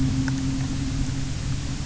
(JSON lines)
{"label": "anthrophony, boat engine", "recorder": "SoundTrap 300"}